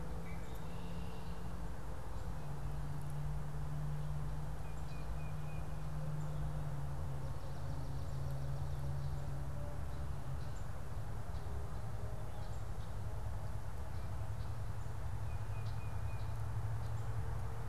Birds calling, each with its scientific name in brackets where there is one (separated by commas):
Red-winged Blackbird (Agelaius phoeniceus), Tufted Titmouse (Baeolophus bicolor)